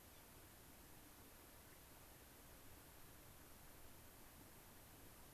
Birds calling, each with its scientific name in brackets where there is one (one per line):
Gray-crowned Rosy-Finch (Leucosticte tephrocotis)